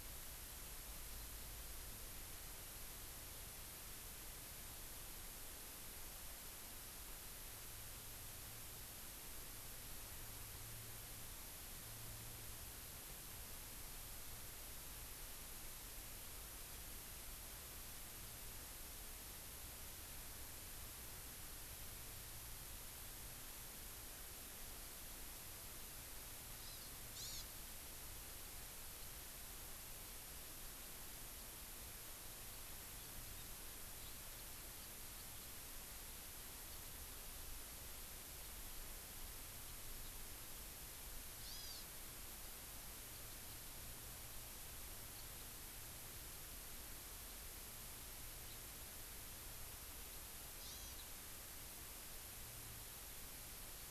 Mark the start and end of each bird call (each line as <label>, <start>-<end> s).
Hawaii Amakihi (Chlorodrepanis virens), 26.6-27.4 s
Hawaii Amakihi (Chlorodrepanis virens), 41.3-41.8 s
Hawaii Amakihi (Chlorodrepanis virens), 50.6-51.0 s